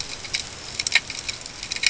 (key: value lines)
label: ambient
recorder: HydroMoth